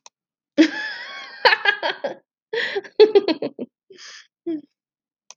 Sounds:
Laughter